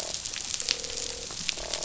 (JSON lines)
{"label": "biophony, croak", "recorder": "SoundTrap 500"}